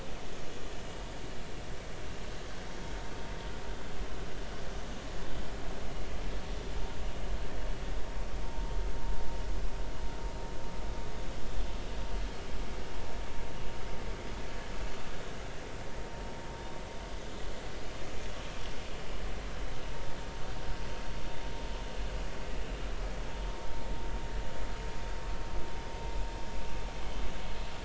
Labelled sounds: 8.4	8.7	vessel noise, 0.83 to 0.96 kHz

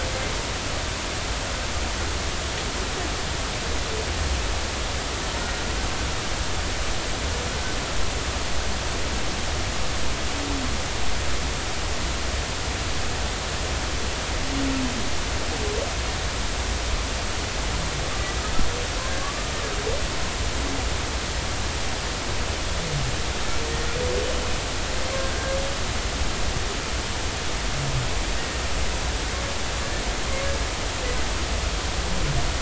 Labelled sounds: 18.1	19.4	humpback whale, 1.1 to 1.2 kHz

